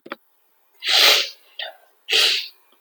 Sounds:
Sniff